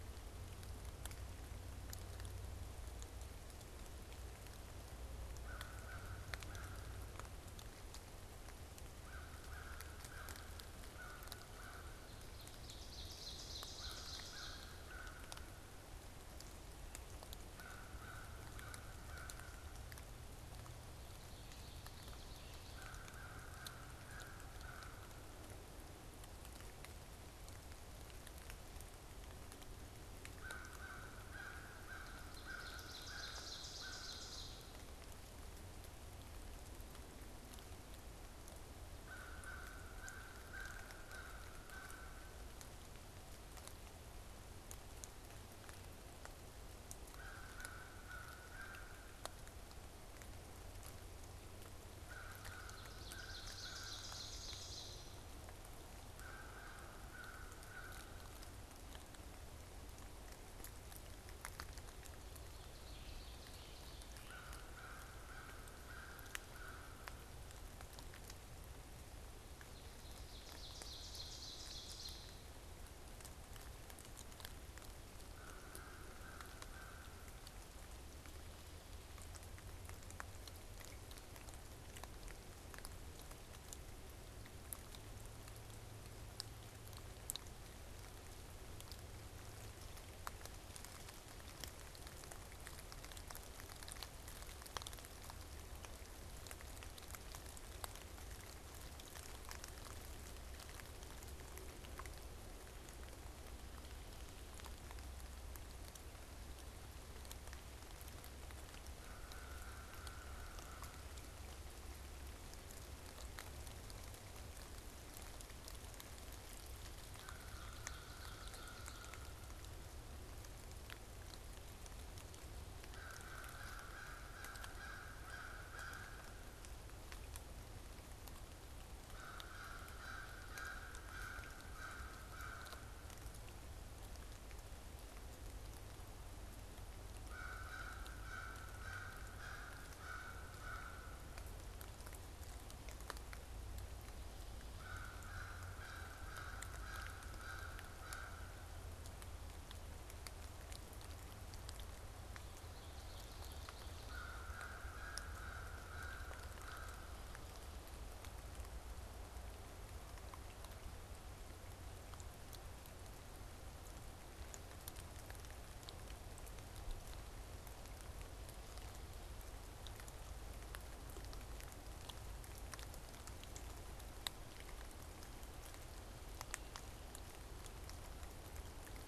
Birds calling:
Ovenbird (Seiurus aurocapilla), American Crow (Corvus brachyrhynchos), Common Yellowthroat (Geothlypis trichas)

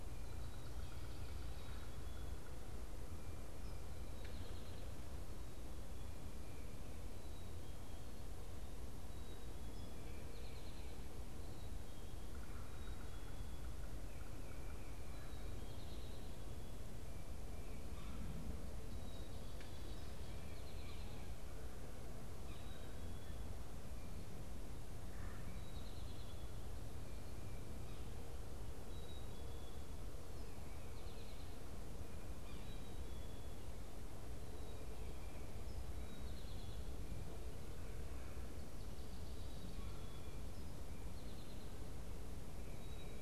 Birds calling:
Black-capped Chickadee (Poecile atricapillus), Yellow-bellied Sapsucker (Sphyrapicus varius), Eastern Towhee (Pipilo erythrophthalmus)

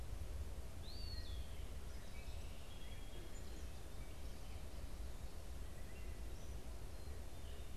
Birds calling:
Song Sparrow (Melospiza melodia), Eastern Wood-Pewee (Contopus virens)

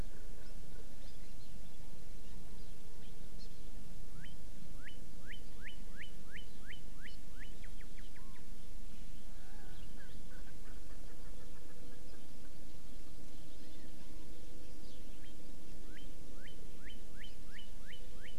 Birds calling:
Northern Cardinal (Cardinalis cardinalis), Hawaii Amakihi (Chlorodrepanis virens), Erckel's Francolin (Pternistis erckelii)

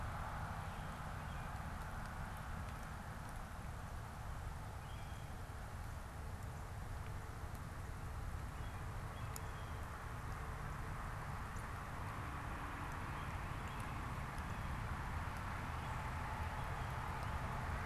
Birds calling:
Northern Cardinal (Cardinalis cardinalis), American Robin (Turdus migratorius), Blue Jay (Cyanocitta cristata)

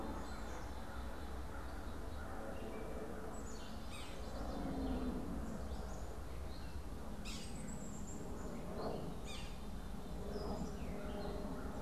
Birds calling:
Yellow-bellied Sapsucker (Sphyrapicus varius), Gray Catbird (Dumetella carolinensis), Black-capped Chickadee (Poecile atricapillus)

